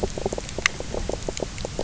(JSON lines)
{"label": "biophony, knock croak", "recorder": "SoundTrap 300"}